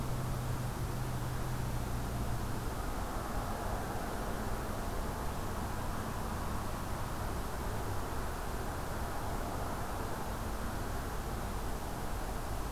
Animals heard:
forest ambience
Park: Acadia National Park